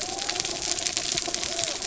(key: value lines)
label: biophony
recorder: SoundTrap 300